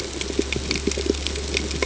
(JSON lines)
{"label": "ambient", "recorder": "HydroMoth"}